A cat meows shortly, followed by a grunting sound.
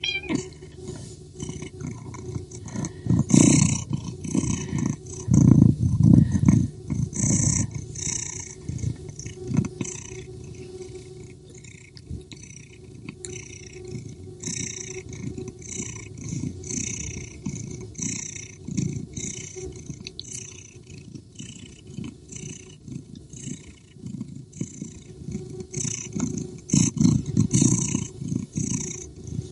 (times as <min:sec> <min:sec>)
0:00.0 0:00.5